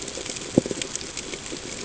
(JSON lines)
{"label": "ambient", "recorder": "HydroMoth"}